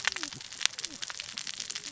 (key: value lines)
label: biophony, cascading saw
recorder: SoundTrap 600 or HydroMoth